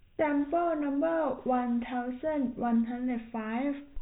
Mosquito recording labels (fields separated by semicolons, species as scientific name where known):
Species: no mosquito; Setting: cup